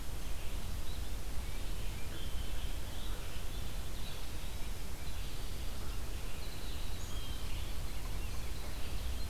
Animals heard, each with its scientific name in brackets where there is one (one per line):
Red-eyed Vireo (Vireo olivaceus)
Winter Wren (Troglodytes hiemalis)
Blue Jay (Cyanocitta cristata)
Tufted Titmouse (Baeolophus bicolor)